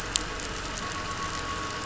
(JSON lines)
{"label": "anthrophony, boat engine", "recorder": "SoundTrap 500"}